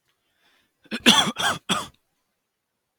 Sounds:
Cough